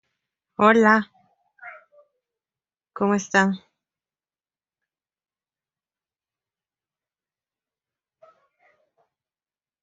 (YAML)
expert_labels:
- quality: no cough present
  dyspnea: false
  wheezing: false
  stridor: false
  choking: false
  congestion: false
  nothing: false
age: 31
gender: female
respiratory_condition: true
fever_muscle_pain: true
status: COVID-19